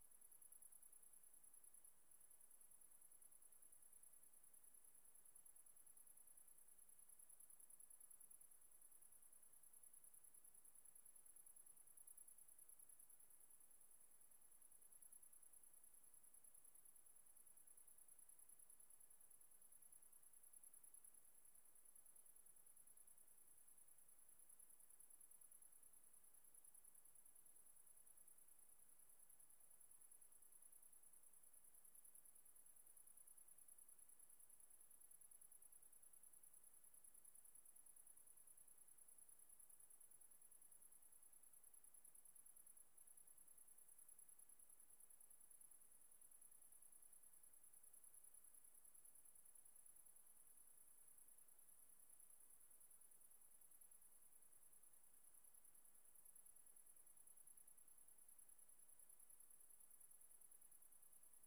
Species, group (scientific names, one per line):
Tettigonia viridissima
Orthoptera